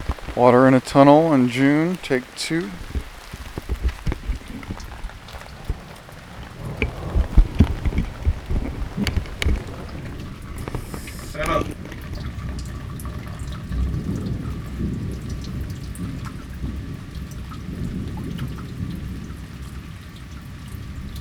Is it a noisy thunderstorm?
no